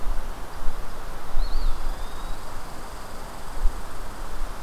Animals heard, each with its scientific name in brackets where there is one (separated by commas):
Eastern Wood-Pewee (Contopus virens), Red Squirrel (Tamiasciurus hudsonicus)